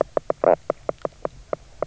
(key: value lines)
label: biophony, knock croak
recorder: SoundTrap 300